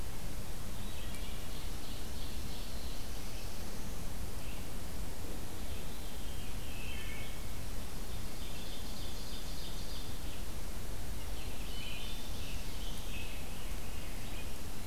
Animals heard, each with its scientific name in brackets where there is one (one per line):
Black-throated Blue Warbler (Setophaga caerulescens)
Veery (Catharus fuscescens)
Ovenbird (Seiurus aurocapilla)
Wood Thrush (Hylocichla mustelina)
Red-eyed Vireo (Vireo olivaceus)
Scarlet Tanager (Piranga olivacea)